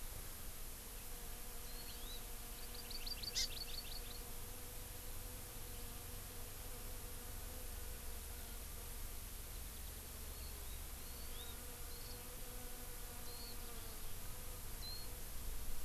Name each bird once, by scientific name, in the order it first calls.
Chlorodrepanis virens, Zosterops japonicus